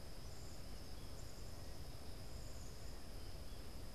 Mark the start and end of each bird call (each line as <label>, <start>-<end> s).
Black-capped Chickadee (Poecile atricapillus), 0.0-3.9 s